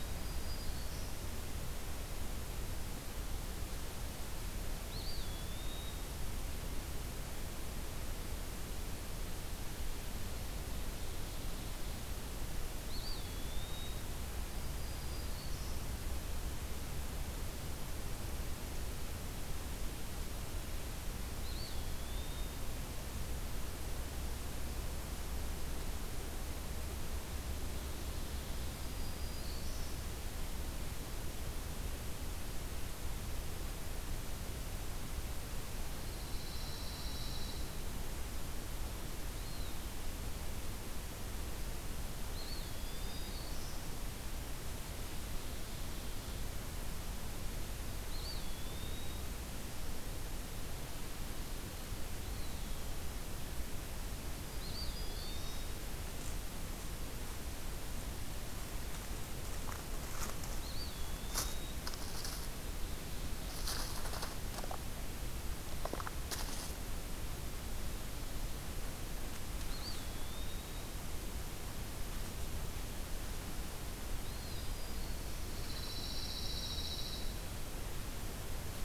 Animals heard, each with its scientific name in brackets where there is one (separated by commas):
Black-throated Green Warbler (Setophaga virens), Pine Warbler (Setophaga pinus), Eastern Wood-Pewee (Contopus virens)